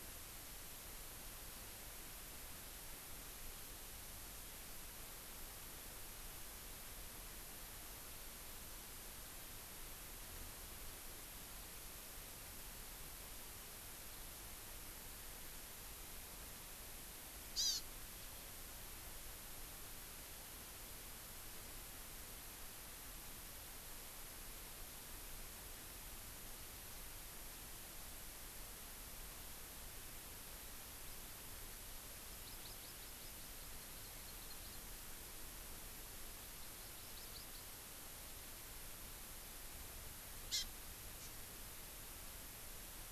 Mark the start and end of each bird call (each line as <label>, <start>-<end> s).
Hawaii Amakihi (Chlorodrepanis virens), 17.6-17.8 s
Hawaii Amakihi (Chlorodrepanis virens), 32.3-34.9 s
Hawaii Amakihi (Chlorodrepanis virens), 36.6-37.7 s
Hawaii Amakihi (Chlorodrepanis virens), 40.5-40.7 s
Hawaii Amakihi (Chlorodrepanis virens), 41.2-41.3 s